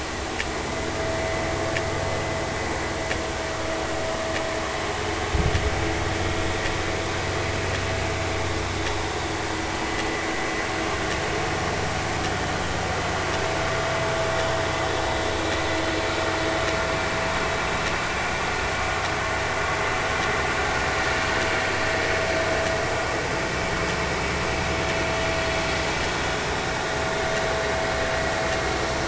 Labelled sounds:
28.1	28.3	vessel noise, 2.0 to 2.2 kHz

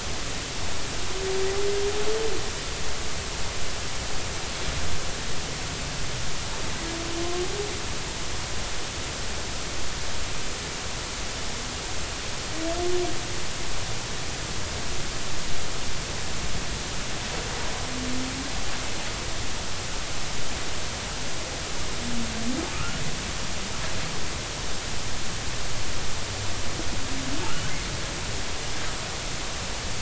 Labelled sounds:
22.7	23.0	humpback whale, 1.2 to 1.5 kHz

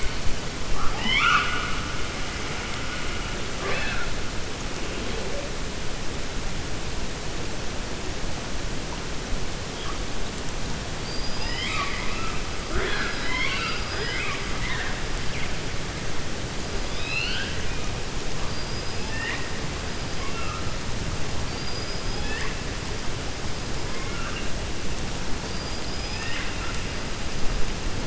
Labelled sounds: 10.9	14.4	killer whale, 0.35 to 5.4 kHz
16.8	17.6	killer whale, 1.5 to 5.1 kHz
22.0	22.6	killer whale, 0.83 to 5.0 kHz

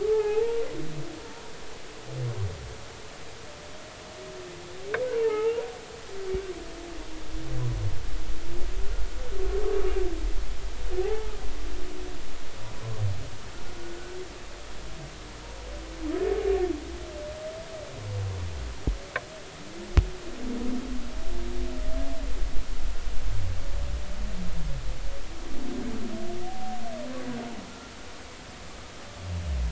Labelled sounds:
0.0	0.6	humpback whale, 0.80 to 1.8 kHz
5.2	5.6	humpback whale, 0.80 to 1.9 kHz
11.0	11.3	humpback whale, 0.80 to 0.93 kHz
13.9	14.2	humpback whale, 1.3 to 1.5 kHz

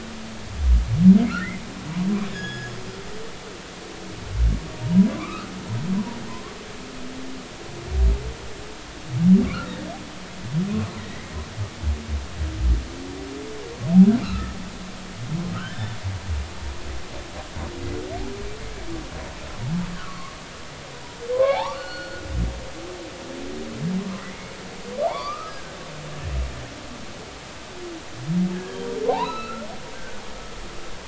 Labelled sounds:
1.3	1.5	humpback whale, 1.2 to 1.5 kHz
2.3	2.7	humpback whale, 1.5 to 6.8 kHz
4.8	5.5	humpback whale, 0.86 to 1.5 kHz
11.0	11.3	humpback whale, 1.9 to 2.2 kHz
14.2	14.6	humpback whale, 1.1 to 1.5 kHz
15.5	16.0	humpback whale, 1.2 to 3.6 kHz
19.9	20.4	humpback whale, 1.0 to 1.8 kHz
21.3	22.2	humpback whale, 0.80 to 4.4 kHz
25.0	25.7	humpback whale, 0.80 to 2.4 kHz
29.1	29.7	humpback whale, 0.80 to 4.1 kHz
29.9	30.2	humpback whale, 1.4 to 1.6 kHz

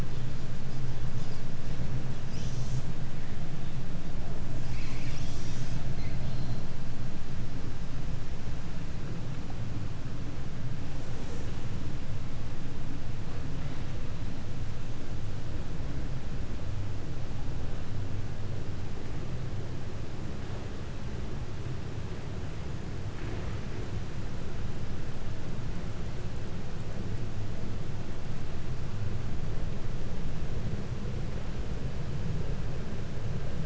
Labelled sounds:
0.0	1.9	killer whale, 1.1 to 8.0 kHz
2.2	2.9	killer whale, 1.8 to 8.0 kHz
4.3	6.8	killer whale, 1.3 to 8.0 kHz

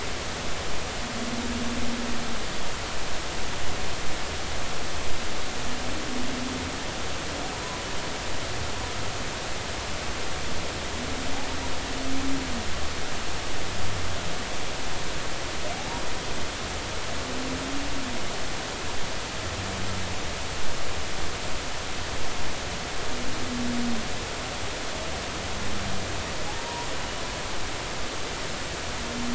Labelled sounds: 26.5	26.9	humpback whale, 0.80 to 1.0 kHz

